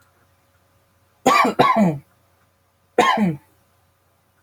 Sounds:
Cough